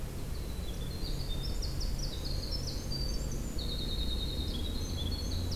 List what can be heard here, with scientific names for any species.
Troglodytes hiemalis